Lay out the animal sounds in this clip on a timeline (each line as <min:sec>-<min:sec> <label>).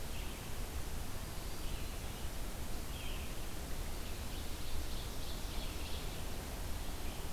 0:00.0-0:07.3 Red-eyed Vireo (Vireo olivaceus)
0:01.3-0:02.1 Black-throated Green Warbler (Setophaga virens)
0:04.1-0:06.4 Ovenbird (Seiurus aurocapilla)